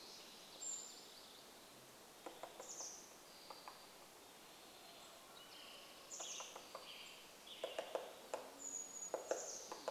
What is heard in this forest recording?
MacGillivray's Warbler song, Chestnut-backed Chickadee call, woodpecker drumming, Spotted Towhee song, Hammond's Flycatcher song, Townsend's Solitaire call, unidentified sound, Western Tanager song, Band-tailed Pigeon call